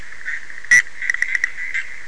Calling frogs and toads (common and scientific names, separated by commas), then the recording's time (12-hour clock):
Bischoff's tree frog (Boana bischoffi)
1:30am